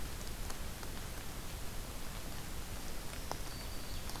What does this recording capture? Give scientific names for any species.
Setophaga virens